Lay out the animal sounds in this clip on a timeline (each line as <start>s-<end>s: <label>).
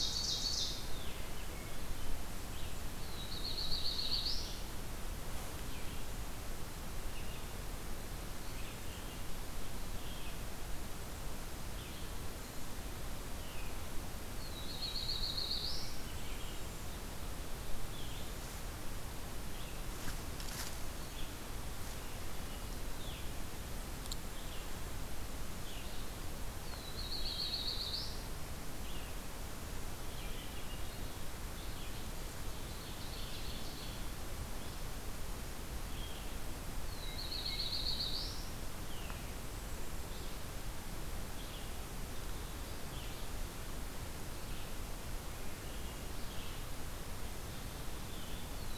0.0s-0.8s: Ovenbird (Seiurus aurocapilla)
0.0s-12.0s: Red-eyed Vireo (Vireo olivaceus)
2.9s-4.7s: Black-throated Blue Warbler (Setophaga caerulescens)
13.2s-48.8s: Red-eyed Vireo (Vireo olivaceus)
14.3s-16.0s: Black-throated Blue Warbler (Setophaga caerulescens)
15.8s-16.9s: Black-capped Chickadee (Poecile atricapillus)
26.9s-28.2s: Black-throated Blue Warbler (Setophaga caerulescens)
30.0s-31.2s: Hermit Thrush (Catharus guttatus)
32.3s-34.0s: Ovenbird (Seiurus aurocapilla)
36.8s-38.5s: Black-throated Blue Warbler (Setophaga caerulescens)
39.1s-40.6s: Black-capped Chickadee (Poecile atricapillus)